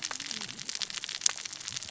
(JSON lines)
{"label": "biophony, cascading saw", "recorder": "SoundTrap 600 or HydroMoth"}